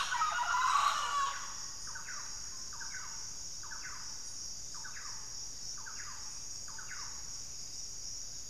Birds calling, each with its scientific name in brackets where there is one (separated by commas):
Rufous-fronted Antthrush (Formicarius rufifrons), Thrush-like Wren (Campylorhynchus turdinus), Mealy Parrot (Amazona farinosa)